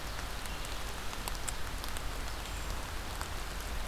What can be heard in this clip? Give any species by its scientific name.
Certhia americana